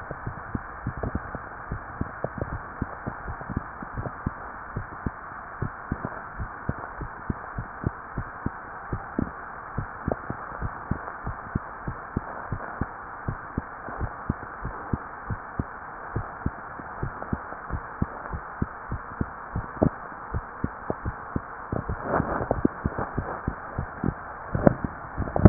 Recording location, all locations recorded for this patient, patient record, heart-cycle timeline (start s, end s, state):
mitral valve (MV)
aortic valve (AV)+pulmonary valve (PV)+tricuspid valve (TV)+mitral valve (MV)
#Age: Child
#Sex: Female
#Height: 144.0 cm
#Weight: 32.6 kg
#Pregnancy status: False
#Murmur: Absent
#Murmur locations: nan
#Most audible location: nan
#Systolic murmur timing: nan
#Systolic murmur shape: nan
#Systolic murmur grading: nan
#Systolic murmur pitch: nan
#Systolic murmur quality: nan
#Diastolic murmur timing: nan
#Diastolic murmur shape: nan
#Diastolic murmur grading: nan
#Diastolic murmur pitch: nan
#Diastolic murmur quality: nan
#Outcome: Normal
#Campaign: 2015 screening campaign
0.00	3.94	unannotated
3.94	4.10	S1
4.10	4.22	systole
4.22	4.34	S2
4.34	4.74	diastole
4.74	4.88	S1
4.88	5.04	systole
5.04	5.16	S2
5.16	5.60	diastole
5.60	5.72	S1
5.72	5.90	systole
5.90	6.00	S2
6.00	6.38	diastole
6.38	6.50	S1
6.50	6.66	systole
6.66	6.75	S2
6.75	6.98	diastole
6.98	7.10	S1
7.10	7.27	systole
7.27	7.36	S2
7.36	7.54	diastole
7.54	7.65	S1
7.65	7.82	systole
7.82	7.90	S2
7.90	8.16	diastole
8.16	8.25	S1
8.25	8.44	systole
8.44	8.54	S2
8.54	8.90	diastole
8.90	9.02	S1
9.02	9.16	systole
9.16	9.30	S2
9.30	9.76	diastole
9.76	9.88	S1
9.88	10.06	systole
10.06	10.16	S2
10.16	10.58	diastole
10.58	10.72	S1
10.72	10.86	systole
10.86	10.97	S2
10.97	11.24	diastole
11.24	11.36	S1
11.36	11.52	systole
11.52	11.60	S2
11.60	11.86	diastole
11.86	11.96	S1
11.96	12.14	systole
12.14	12.20	S2
12.20	12.50	diastole
12.50	12.62	S1
12.62	12.79	systole
12.79	12.88	S2
12.88	13.26	diastole
13.26	13.38	S1
13.38	13.56	systole
13.56	13.64	S2
13.64	13.98	diastole
13.98	14.12	S1
14.12	14.26	systole
14.26	14.36	S2
14.36	14.60	diastole
14.60	14.74	S1
14.74	14.89	systole
14.89	14.99	S2
14.99	15.28	diastole
15.28	15.40	S1
15.40	15.56	systole
15.56	15.66	S2
15.66	16.14	diastole
16.14	16.26	S1
16.26	16.42	systole
16.42	16.56	S2
16.56	17.00	diastole
17.00	17.14	S1
17.14	17.30	systole
17.30	17.40	S2
17.40	17.70	diastole
17.70	17.84	S1
17.84	17.98	systole
17.98	18.12	S2
18.12	18.29	diastole
18.29	18.41	S1
18.41	18.58	systole
18.58	18.67	S2
18.67	18.88	diastole
18.88	18.98	S1
18.98	19.18	systole
19.18	19.25	S2
19.25	19.52	diastole
19.52	19.66	S1
19.66	19.80	systole
19.80	19.94	S2
19.94	20.30	diastole
20.30	20.44	S1
20.44	25.49	unannotated